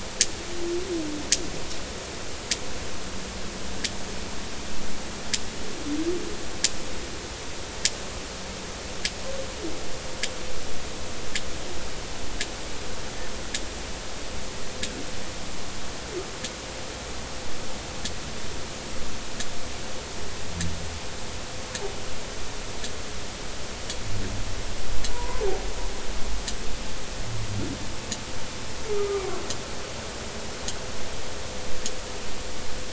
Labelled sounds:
25.1	25.4	humpback whale, 0.90 to 1.1 kHz
28.9	29.3	humpback whale, 1.1 to 1.4 kHz

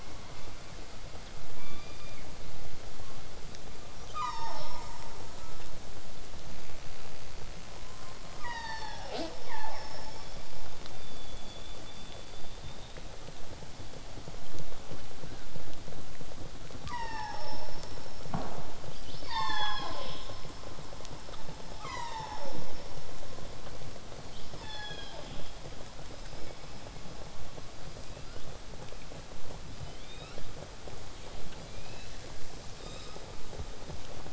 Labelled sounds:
3.9	5.0	killer whale, southern resident, call S36, 0.40 to 8.0 kHz
9.1	9.3	killer whale, southern resident, J pod, call S05, 0.18 to 8.0 kHz
9.4	13.0	killer whale, southern resident, 0.58 to 5.0 kHz
15.2	15.5	killer whale, southern resident, 1.2 to 4.9 kHz
16.8	17.8	killer whale, southern resident, call S36, 0.36 to 8.0 kHz
18.9	20.4	killer whale, southern resident, call S36, 0.40 to 7.9 kHz
21.7	22.8	killer whale, southern resident, call S36, 0.36 to 8.0 kHz
24.2	25.5	killer whale, southern resident, call S36, 0.33 to 7.0 kHz
27.9	28.5	killer whale, southern resident, L pod, call S19, 1.2 to 5.5 kHz
29.8	30.5	killer whale, southern resident, L pod, call S19, 1.0 to 7.7 kHz
31.6	32.1	killer whale, southern resident, L pod, call S19, 2.2 to 5.3 kHz
32.8	33.3	killer whale, southern resident, 1.0 to 7.8 kHz

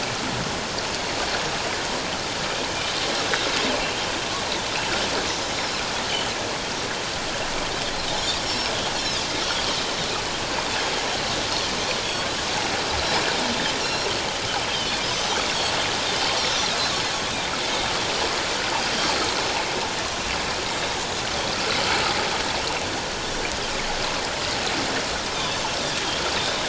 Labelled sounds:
8.4	9.2	Pacific white-sided dolphin, 3.7 to 5.6 kHz
12.0	12.3	Pacific white-sided dolphin, 3.2 to 3.5 kHz
13.8	15.4	Pacific white-sided dolphin, 2.9 to 6.2 kHz
19.0	19.3	Pacific white-sided dolphin, 4.2 to 4.3 kHz
20.7	21.0	Pacific white-sided dolphin, 3.6 to 3.8 kHz

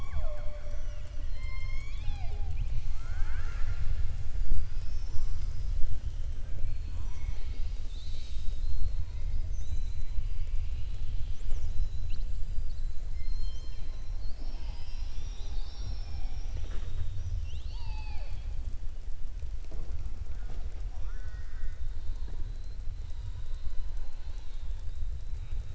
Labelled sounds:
4.4	5.7	killer whale, southern resident, 4.6 to 7.6 kHz
17.1	18.5	killer whale, southern resident, 0.63 to 6.4 kHz

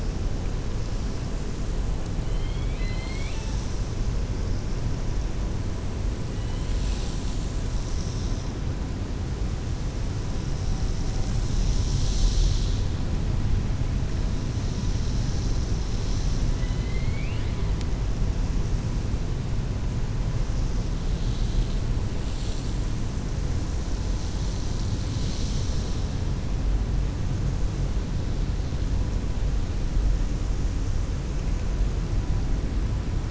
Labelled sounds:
2.5	3.8	killer whale, 1.1 to 7.9 kHz
16.5	17.6	killer whale, 1.8 to 4.1 kHz

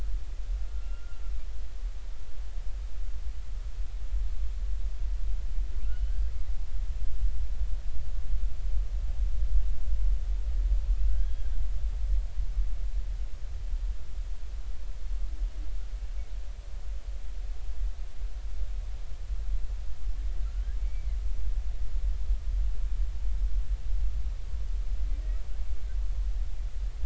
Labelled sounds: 0.7	1.2	humpback whale, 1.3 to 1.5 kHz
5.9	6.1	humpback whale, 2.8 to 3.1 kHz
11.1	11.5	humpback whale, 1.4 to 3.4 kHz
20.4	21.2	humpback whale, 1.3 to 2.4 kHz

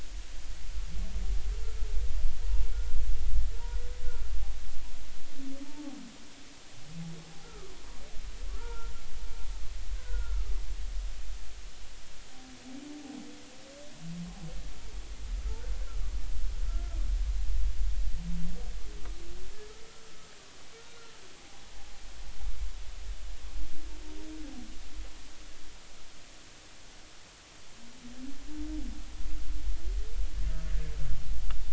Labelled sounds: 5.6	6.0	humpback whale, 0.80 to 0.93 kHz
7.4	7.7	humpback whale, 1.1 to 1.4 kHz
8.6	8.9	humpback whale, 0.86 to 1.5 kHz
9.9	10.5	humpback whale, 1.2 to 1.6 kHz
16.7	17.0	humpback whale, 1.3 to 1.5 kHz
21.4	21.6	humpback whale, 0.80 to 0.86 kHz

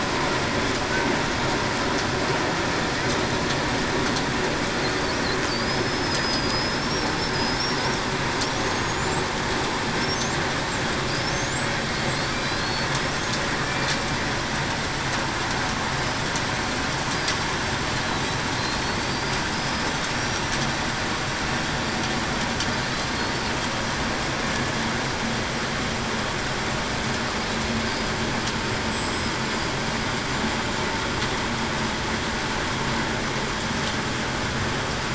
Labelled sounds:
5.6	6.5	killer whale, Bigg's (transient), 4.8 to 5.3 kHz
12.4	12.9	killer whale, Bigg's (transient), 3.9 to 4.5 kHz
19.1	19.9	killer whale, Bigg's (transient), 4.6 to 5.2 kHz
28.9	29.3	killer whale, Bigg's (transient), 5.1 to 7.7 kHz

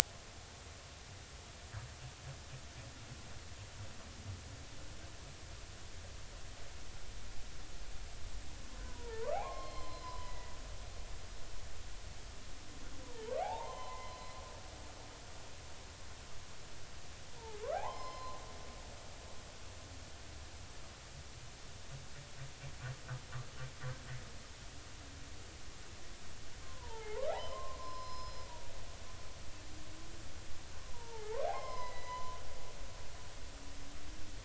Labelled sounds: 8.8	10.5	humpback whale, 0.80 to 5.2 kHz
13.0	14.4	humpback whale, 0.80 to 4.1 kHz
17.6	18.4	humpback whale, 0.80 to 5.3 kHz
26.6	28.5	humpback whale, 0.80 to 5.2 kHz
30.8	32.4	humpback whale, 0.80 to 5.3 kHz

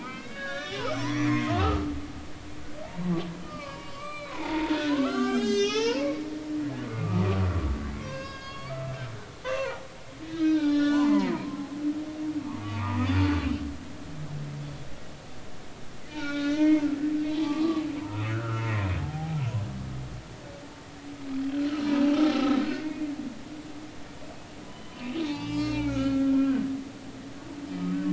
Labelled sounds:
0.0	1.9	humpback whale, 0.90 to 6.2 kHz
2.8	6.2	humpback whale, 0.80 to 7.8 kHz
6.9	9.0	humpback whale, 0.99 to 6.7 kHz
9.6	11.7	humpback whale, 0.80 to 6.5 kHz
12.6	13.1	humpback whale, 0.86 to 2.6 kHz
16.1	18.6	humpback whale, 0.80 to 5.5 kHz
19.0	19.4	humpback whale, 0.80 to 0.90 kHz
21.7	23.4	humpback whale, 0.80 to 4.0 kHz
24.7	26.7	humpback whale, 0.80 to 4.4 kHz

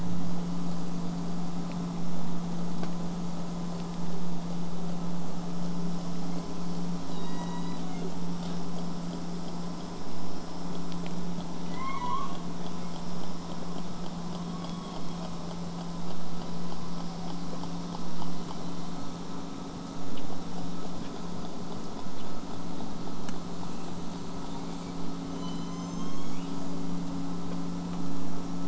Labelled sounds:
7.1	8.3	killer whale, southern resident, J pod, call S01, 0.28 to 8.0 kHz
11.7	12.4	killer whale, southern resident, J pod, 0.88 to 4.5 kHz
14.5	15.6	killer whale, southern resident, J pod, 3.1 to 8.0 kHz
16.4	17.4	killer whale, southern resident, J pod, 0.55 to 2.4 kHz
18.3	19.1	killer whale, southern resident, J pod, 1.9 to 4.6 kHz
25.3	26.9	killer whale, southern resident, J pod, call S01, 1.9 to 8.0 kHz

